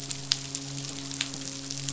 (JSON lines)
{"label": "biophony, midshipman", "recorder": "SoundTrap 500"}